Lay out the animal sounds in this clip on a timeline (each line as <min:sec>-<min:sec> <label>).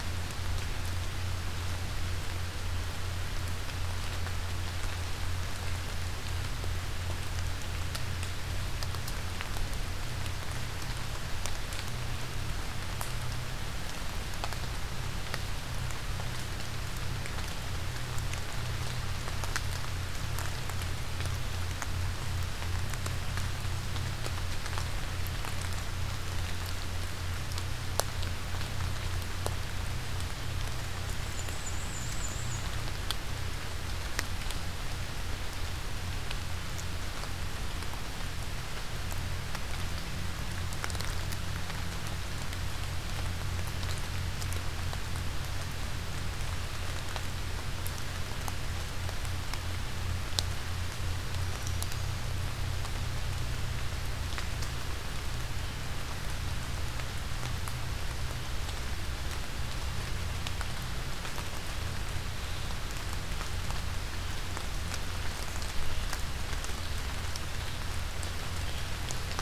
0:31.1-0:32.7 Black-and-white Warbler (Mniotilta varia)
0:51.3-0:52.3 Black-throated Green Warbler (Setophaga virens)
1:02.3-1:09.4 Red-eyed Vireo (Vireo olivaceus)